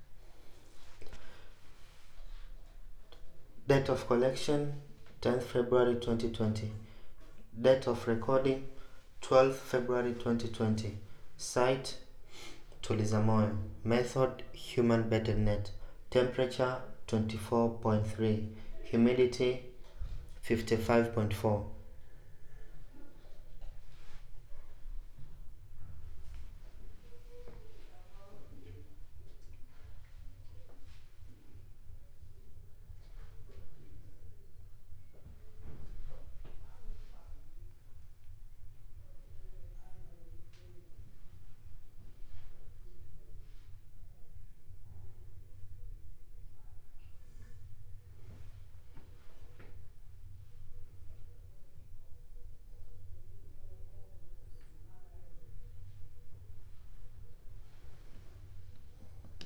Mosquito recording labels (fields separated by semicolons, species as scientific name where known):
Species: no mosquito; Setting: cup